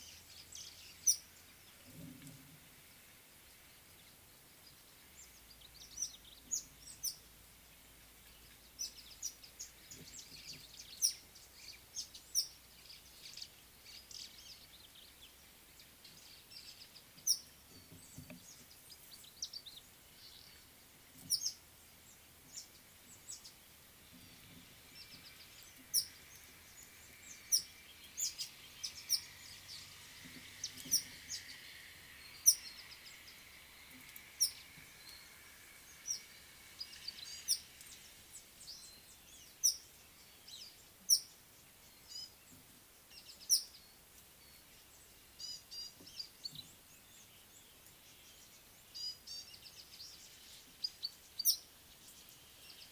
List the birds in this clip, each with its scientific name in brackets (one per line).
Speckled Mousebird (Colius striatus)
Red-headed Weaver (Anaplectes rubriceps)
White-browed Sparrow-Weaver (Plocepasser mahali)
Red-faced Crombec (Sylvietta whytii)
Gray-backed Camaroptera (Camaroptera brevicaudata)